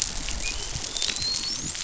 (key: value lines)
label: biophony, dolphin
recorder: SoundTrap 500